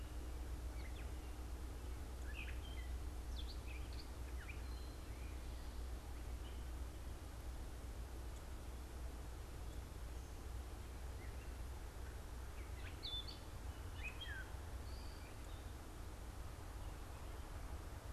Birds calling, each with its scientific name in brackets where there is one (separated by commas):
Gray Catbird (Dumetella carolinensis), Eastern Towhee (Pipilo erythrophthalmus)